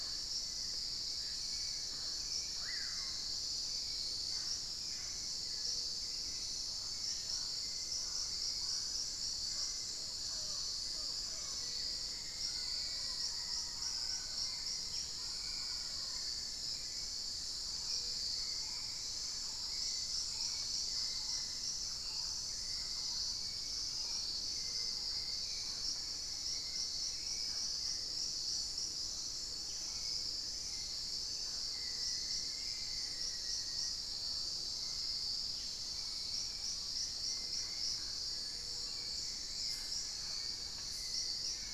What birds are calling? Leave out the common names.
Lipaugus vociferans, Turdus hauxwelli, Amazona farinosa, Formicarius analis, Campylorhynchus turdinus